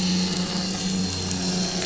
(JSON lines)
{"label": "anthrophony, boat engine", "recorder": "SoundTrap 500"}